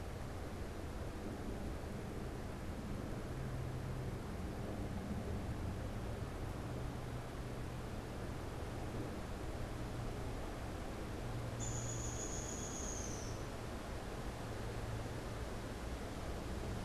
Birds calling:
Downy Woodpecker (Dryobates pubescens)

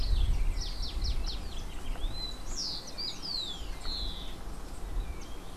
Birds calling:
House Wren (Troglodytes aedon)
Rufous-collared Sparrow (Zonotrichia capensis)

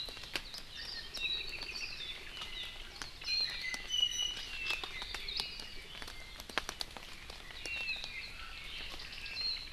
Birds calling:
Warbling White-eye (Zosterops japonicus)
Iiwi (Drepanis coccinea)
Apapane (Himatione sanguinea)

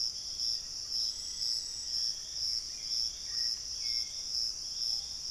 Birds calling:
Piratic Flycatcher (Legatus leucophaius)
Black-faced Antthrush (Formicarius analis)
Hauxwell's Thrush (Turdus hauxwelli)
Screaming Piha (Lipaugus vociferans)

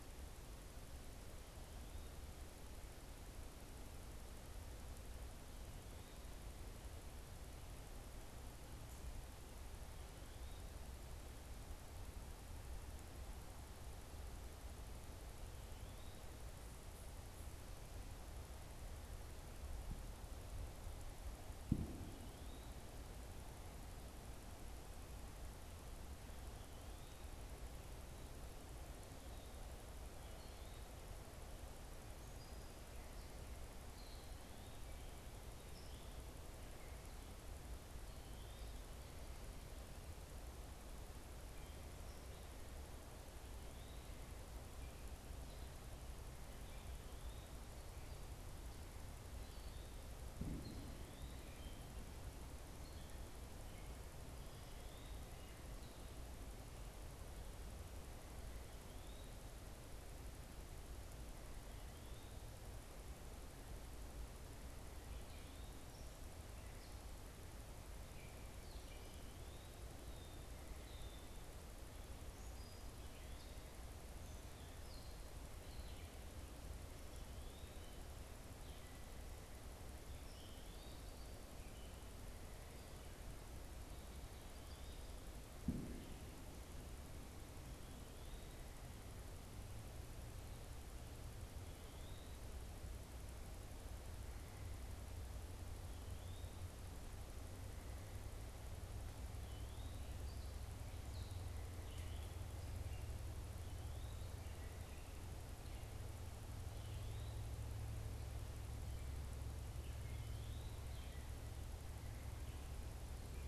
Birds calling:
Gray Catbird (Dumetella carolinensis)
Eastern Wood-Pewee (Contopus virens)

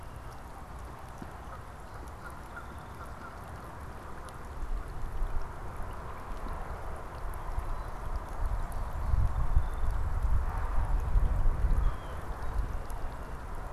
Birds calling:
Song Sparrow (Melospiza melodia)
Blue Jay (Cyanocitta cristata)
Canada Goose (Branta canadensis)

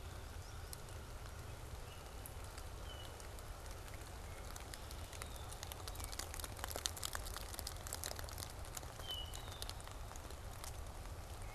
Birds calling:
Solitary Sandpiper (Tringa solitaria)
Red-winged Blackbird (Agelaius phoeniceus)

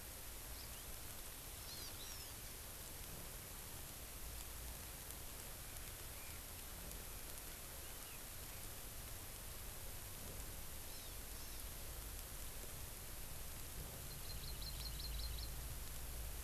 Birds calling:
Red-billed Leiothrix (Leiothrix lutea)
Hawaii Amakihi (Chlorodrepanis virens)

